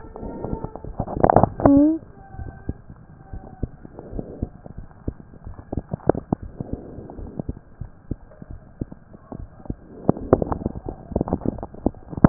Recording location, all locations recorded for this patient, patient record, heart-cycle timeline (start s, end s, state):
mitral valve (MV)
aortic valve (AV)+pulmonary valve (PV)+tricuspid valve (TV)+mitral valve (MV)
#Age: Child
#Sex: Male
#Height: 104.0 cm
#Weight: 19.8 kg
#Pregnancy status: False
#Murmur: Absent
#Murmur locations: nan
#Most audible location: nan
#Systolic murmur timing: nan
#Systolic murmur shape: nan
#Systolic murmur grading: nan
#Systolic murmur pitch: nan
#Systolic murmur quality: nan
#Diastolic murmur timing: nan
#Diastolic murmur shape: nan
#Diastolic murmur grading: nan
#Diastolic murmur pitch: nan
#Diastolic murmur quality: nan
#Outcome: Normal
#Campaign: 2015 screening campaign
0.00	3.29	unannotated
3.29	3.44	S1
3.44	3.60	systole
3.60	3.70	S2
3.70	4.09	diastole
4.09	4.26	S1
4.26	4.38	systole
4.38	4.52	S2
4.52	4.76	diastole
4.76	4.89	S1
4.89	5.04	systole
5.04	5.15	S2
5.15	5.44	diastole
5.44	5.54	S1
5.54	5.74	systole
5.74	5.84	S2
5.84	6.38	unannotated
6.38	6.50	S1
6.50	6.68	systole
6.68	6.79	S2
6.79	7.15	diastole
7.15	7.29	S1
7.29	7.46	systole
7.46	7.55	S2
7.55	7.78	diastole
7.78	7.90	S1
7.90	8.08	systole
8.08	8.20	S2
8.20	8.47	diastole
8.47	8.61	S1
8.61	8.77	systole
8.77	8.90	S2
8.90	9.35	diastole
9.35	9.48	S1
9.48	9.66	systole
9.66	9.74	S2
9.74	12.29	unannotated